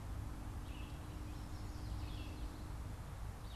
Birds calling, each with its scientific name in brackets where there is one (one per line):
Red-eyed Vireo (Vireo olivaceus)
Yellow Warbler (Setophaga petechia)